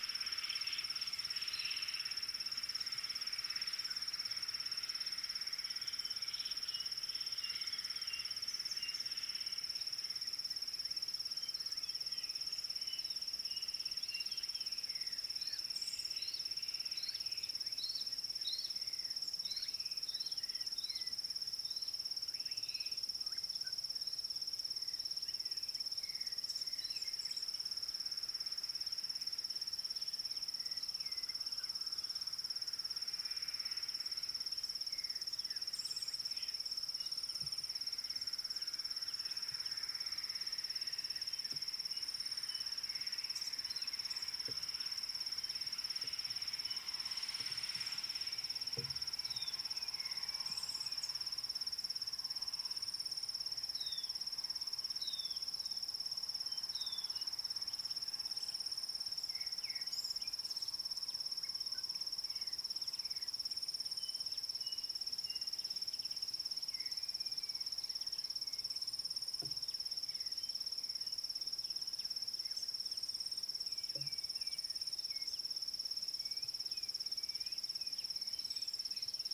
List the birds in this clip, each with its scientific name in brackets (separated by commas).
Pale White-eye (Zosterops flavilateralis), Klaas's Cuckoo (Chrysococcyx klaas)